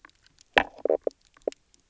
{"label": "biophony, knock croak", "recorder": "SoundTrap 300"}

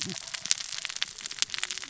{"label": "biophony, cascading saw", "recorder": "SoundTrap 600 or HydroMoth"}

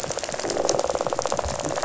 {"label": "biophony, rattle", "recorder": "SoundTrap 500"}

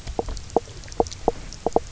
{"label": "biophony, knock croak", "recorder": "SoundTrap 300"}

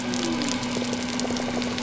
{"label": "biophony", "recorder": "SoundTrap 300"}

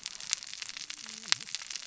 {"label": "biophony, cascading saw", "recorder": "SoundTrap 600 or HydroMoth"}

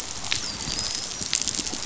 {"label": "biophony, dolphin", "recorder": "SoundTrap 500"}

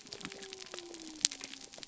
{"label": "biophony", "recorder": "SoundTrap 300"}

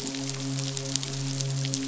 {"label": "biophony, midshipman", "recorder": "SoundTrap 500"}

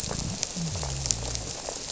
{"label": "biophony", "recorder": "SoundTrap 300"}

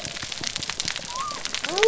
{"label": "biophony", "recorder": "SoundTrap 300"}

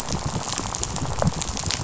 {"label": "biophony, rattle", "recorder": "SoundTrap 500"}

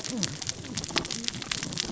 {"label": "biophony, cascading saw", "recorder": "SoundTrap 600 or HydroMoth"}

